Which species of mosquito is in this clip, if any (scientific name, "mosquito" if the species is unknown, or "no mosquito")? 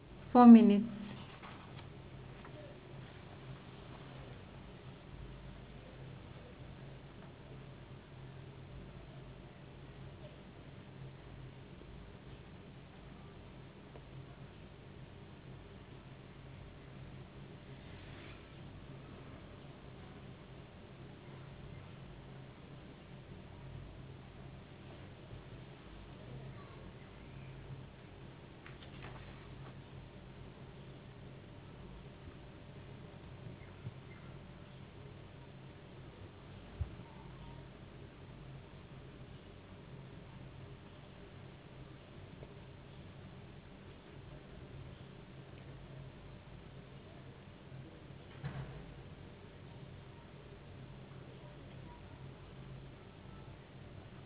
no mosquito